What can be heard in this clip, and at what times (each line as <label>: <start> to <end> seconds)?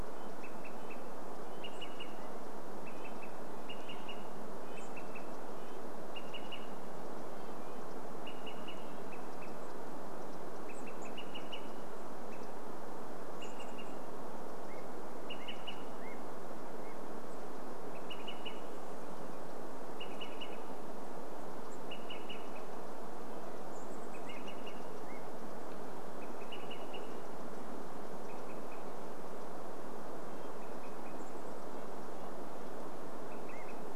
Chestnut-backed Chickadee call: 0 to 2 seconds
Red-breasted Nuthatch song: 0 to 10 seconds
Olive-sided Flycatcher call: 0 to 16 seconds
unidentified sound: 2 to 4 seconds
Chestnut-backed Chickadee call: 10 to 14 seconds
unidentified sound: 14 to 18 seconds
Olive-sided Flycatcher call: 18 to 34 seconds
Chestnut-backed Chickadee call: 20 to 26 seconds
Red-breasted Nuthatch song: 22 to 24 seconds
unidentified sound: 24 to 30 seconds
Chestnut-backed Chickadee call: 30 to 32 seconds
Red-breasted Nuthatch song: 30 to 34 seconds
unidentified sound: 32 to 34 seconds